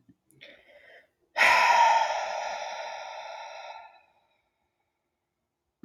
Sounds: Sigh